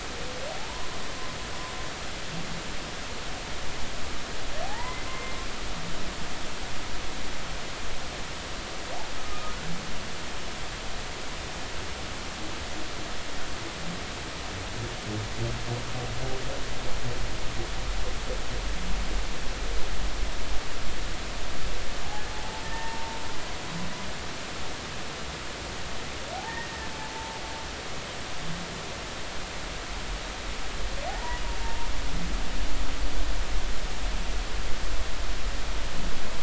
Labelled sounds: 0.5	0.9	humpback whale, 0.80 to 1.1 kHz
4.6	5.4	humpback whale, 0.80 to 2.1 kHz
9.2	9.6	humpback whale, 1.2 to 1.3 kHz
22.3	23.2	humpback whale, 0.80 to 1.9 kHz
27.4	27.7	humpback whale, 1.8 to 1.9 kHz
31.1	31.9	humpback whale, 0.80 to 2.0 kHz

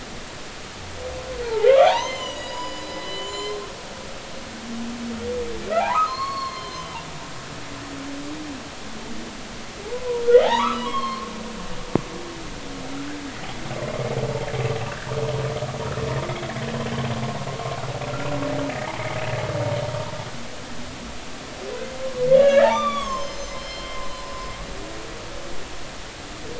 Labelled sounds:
1.5	3.6	humpback whale, 0.80 to 8.0 kHz
5.8	7.0	humpback whale, 0.80 to 4.4 kHz
9.8	11.3	humpback whale, 0.80 to 4.4 kHz
22.0	24.5	humpback whale, 0.96 to 7.1 kHz

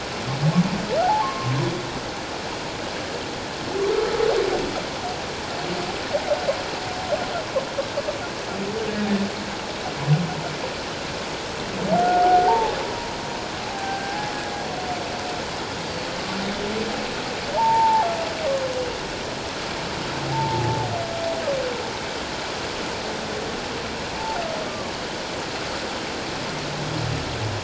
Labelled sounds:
1.0	1.5	humpback whale, 0.78 to 1.2 kHz
3.9	4.2	humpback whale, 1.2 to 1.4 kHz
11.9	12.7	humpback whale, 0.78 to 1.5 kHz
13.6	14.3	humpback whale, 0.78 to 1.7 kHz
15.9	16.1	humpback whale, 4.4 to 4.8 kHz
17.5	18.1	humpback whale, 0.78 to 1.0 kHz
20.3	20.8	humpback whale, 0.78 to 1.0 kHz
24.7	24.9	humpback whale, 1.1 to 1.2 kHz

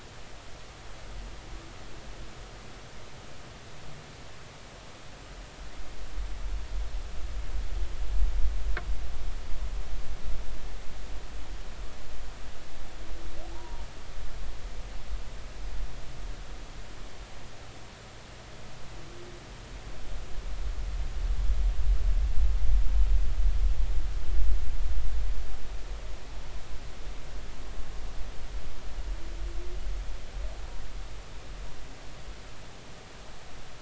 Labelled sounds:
13.5	13.8	humpback whale, 0.80 to 1.0 kHz

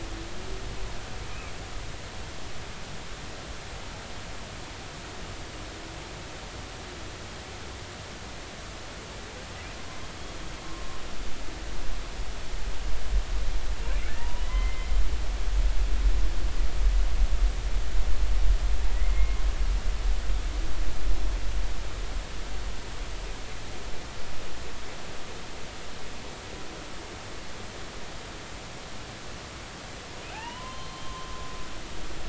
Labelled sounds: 10.6	11.0	humpback whale, 1.0 to 1.1 kHz
14.2	14.9	humpback whale, 0.90 to 3.2 kHz
18.9	19.4	humpback whale, 1.9 to 2.3 kHz
30.3	31.3	humpback whale, 0.80 to 4.2 kHz

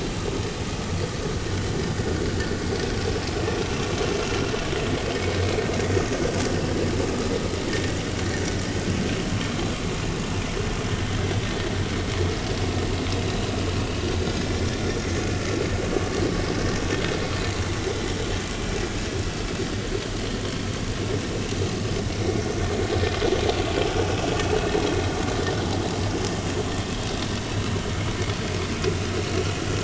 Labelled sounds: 22.1	22.4	vessel noise, 5.5 to 5.7 kHz

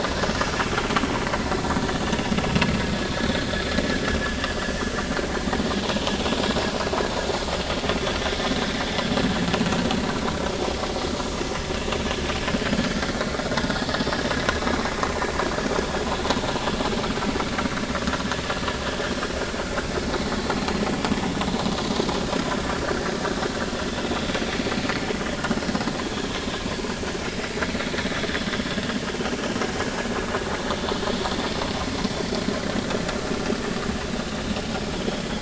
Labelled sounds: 13.8	14.1	vessel noise, 1.6 to 1.9 kHz
34.9	35.3	vessel noise, 3.1 to 3.5 kHz

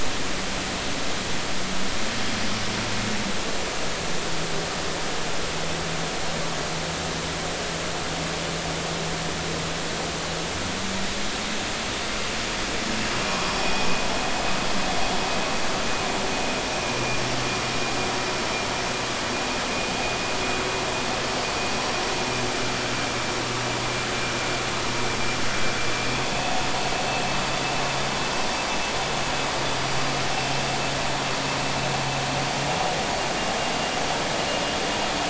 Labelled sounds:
13.6	13.9	vessel noise, 2.4 to 2.6 kHz
16.9	17.2	vessel noise, 2.4 to 2.5 kHz

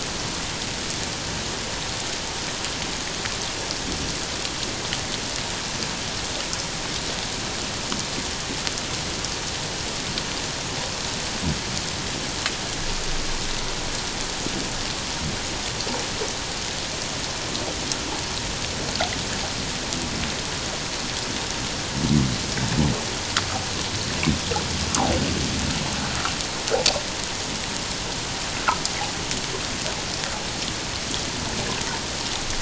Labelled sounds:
24.9	25.1	humpback whale, 0.78 to 1.4 kHz

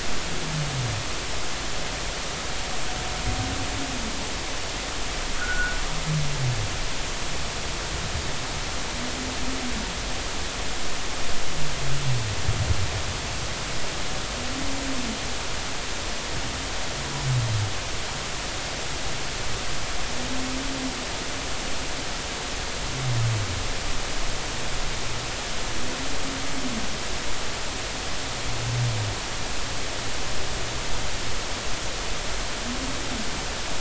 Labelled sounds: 5.4	5.8	fishing gear, 1.3 to 1.6 kHz

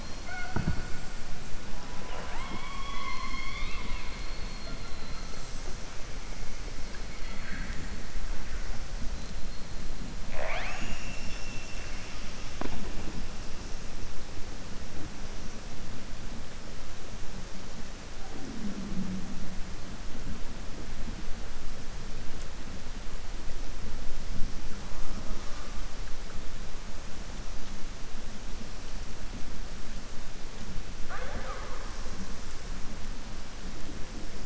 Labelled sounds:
7.2	7.9	killer whale, southern resident, 1.3 to 2.9 kHz

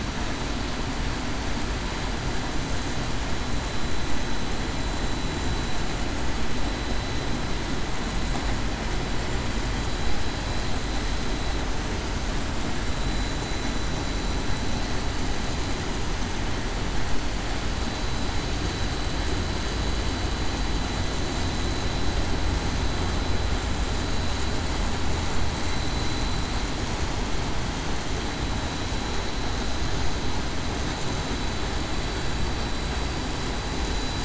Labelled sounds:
28.2	28.5	vessel noise, 3.91 to 3.94 kHz

